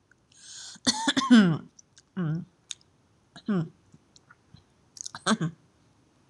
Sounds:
Throat clearing